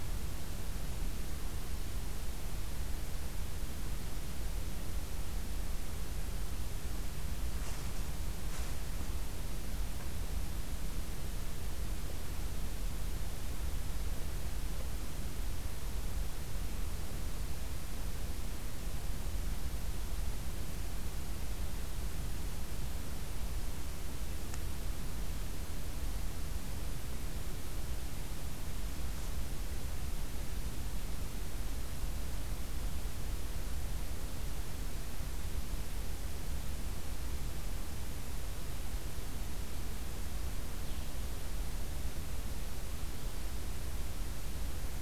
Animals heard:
forest ambience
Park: Acadia National Park